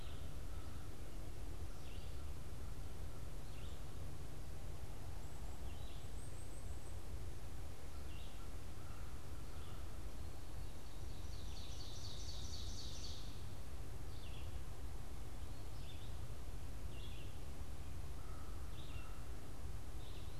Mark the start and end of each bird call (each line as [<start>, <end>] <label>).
[0.00, 20.35] Red-eyed Vireo (Vireo olivaceus)
[5.95, 7.75] Black-capped Chickadee (Poecile atricapillus)
[7.65, 10.15] American Crow (Corvus brachyrhynchos)
[10.65, 13.65] Ovenbird (Seiurus aurocapilla)
[17.95, 19.35] American Crow (Corvus brachyrhynchos)